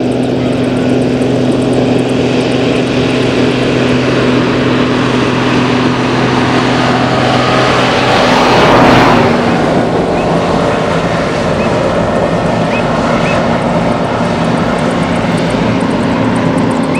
Is it outside?
yes